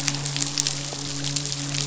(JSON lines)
{"label": "biophony, midshipman", "recorder": "SoundTrap 500"}